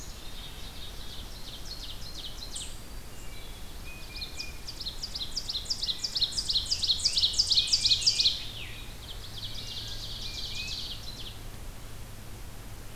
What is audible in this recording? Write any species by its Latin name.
Poecile atricapillus, Seiurus aurocapilla, Setophaga virens, Hylocichla mustelina, Baeolophus bicolor